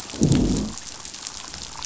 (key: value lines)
label: biophony, growl
recorder: SoundTrap 500